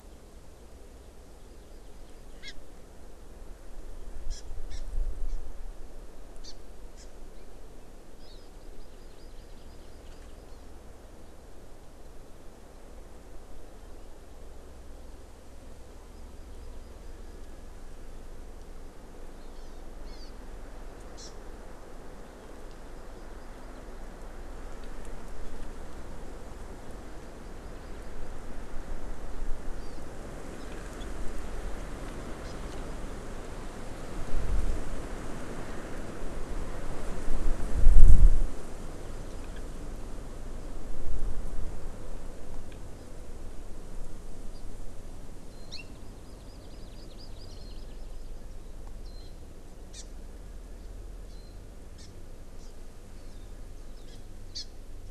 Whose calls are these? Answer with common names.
Hawaii Amakihi, Warbling White-eye